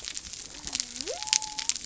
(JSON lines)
{"label": "biophony", "recorder": "SoundTrap 300"}